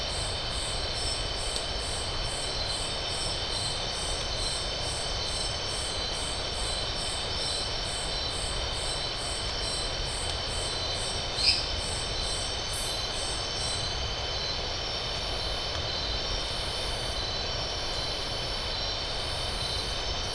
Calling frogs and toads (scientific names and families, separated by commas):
Dendropsophus minutus (Hylidae)